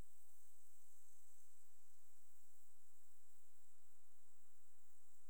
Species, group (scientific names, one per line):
Tessellana tessellata
Orthoptera